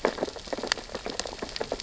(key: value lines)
label: biophony, sea urchins (Echinidae)
recorder: SoundTrap 600 or HydroMoth